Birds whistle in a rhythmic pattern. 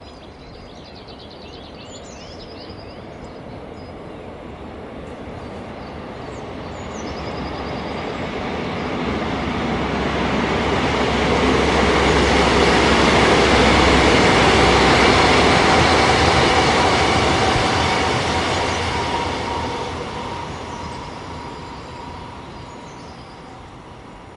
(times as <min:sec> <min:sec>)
0:00.1 0:08.2, 0:19.5 0:24.3